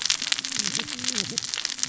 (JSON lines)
{"label": "biophony, cascading saw", "recorder": "SoundTrap 600 or HydroMoth"}